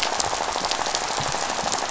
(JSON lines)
{"label": "biophony, rattle", "recorder": "SoundTrap 500"}